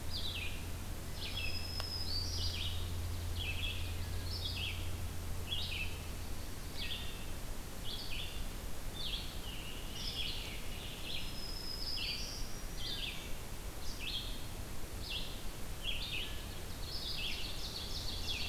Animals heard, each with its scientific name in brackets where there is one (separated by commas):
Scarlet Tanager (Piranga olivacea), Wood Thrush (Hylocichla mustelina), Black-throated Green Warbler (Setophaga virens), Ovenbird (Seiurus aurocapilla), Red-eyed Vireo (Vireo olivaceus)